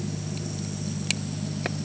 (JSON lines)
{"label": "anthrophony, boat engine", "recorder": "HydroMoth"}